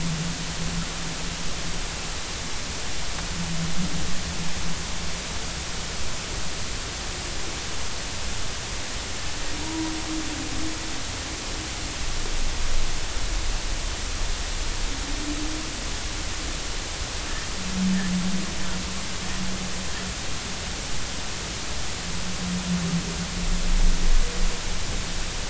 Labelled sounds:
9.6	9.9	humpback whale, 0.90 to 1.0 kHz

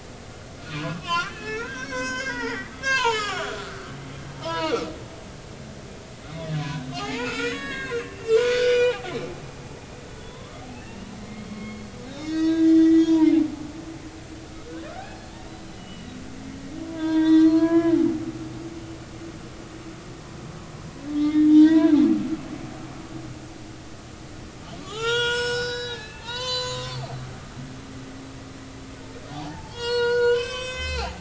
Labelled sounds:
1.0	4.9	humpback whale, 0.80 to 7.8 kHz
6.2	9.1	humpback whale, 0.80 to 5.9 kHz
10.2	13.3	humpback whale, 0.86 to 6.6 kHz
14.9	15.2	humpback whale, 1.2 to 1.7 kHz
15.8	17.9	humpback whale, 0.90 to 5.8 kHz
21.1	22.0	humpback whale, 0.86 to 4.3 kHz
24.8	27.1	humpback whale, 0.80 to 7.8 kHz
29.3	31.1	humpback whale, 0.80 to 7.8 kHz

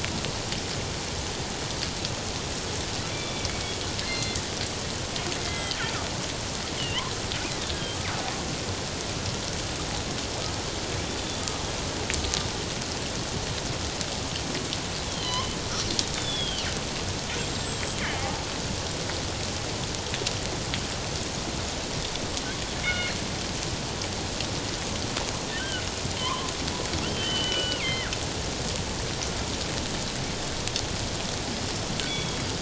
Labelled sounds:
3.1	3.5	killer whale, northern resident, G clan, 2.2 to 3.6 kHz
4.0	4.4	killer whale, northern resident, G clan, 1.9 to 4.2 kHz
5.4	5.8	killer whale, northern resident, G clan, 2.0 to 3.3 kHz
6.8	7.9	killer whale, northern resident, G clan, 1.5 to 3.2 kHz
11.2	11.4	killer whale, northern resident, G clan, 3.4 to 3.5 kHz
15.1	15.6	killer whale, northern resident, G clan, 1.9 to 4.2 kHz
16.1	16.7	killer whale, northern resident, G clan, 2.8 to 3.8 kHz
17.4	18.4	killer whale, northern resident, G clan, 0.78 to 7.6 kHz
22.8	23.1	killer whale, northern resident, G clan, 1.4 to 3.0 kHz
25.6	26.5	killer whale, northern resident, G clan, 0.94 to 3.3 kHz
27.0	28.1	killer whale, northern resident, G clan, 1.3 to 3.2 kHz
32.0	32.4	killer whale, northern resident, G clan, 2.2 to 3.5 kHz

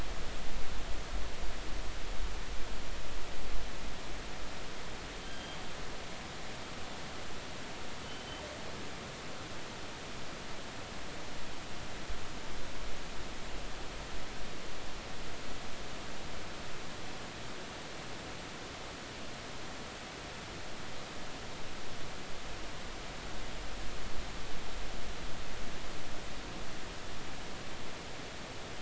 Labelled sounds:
5.2	5.6	killer whale, northern resident, G clan, GG subclan, call N28, 3.1 to 3.3 kHz
8.0	8.4	killer whale, northern resident, G clan, GG subclan, call N28, 3.0 to 3.2 kHz

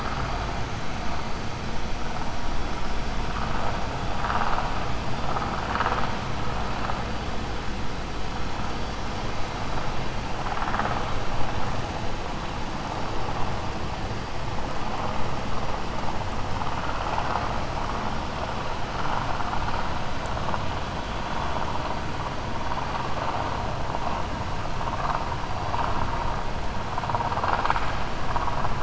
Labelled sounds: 27.1	28.0	vessel noise, 0.50 to 4.9 kHz

